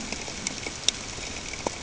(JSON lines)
{"label": "ambient", "recorder": "HydroMoth"}